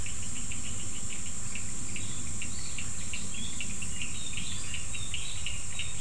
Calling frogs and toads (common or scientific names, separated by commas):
Cochran's lime tree frog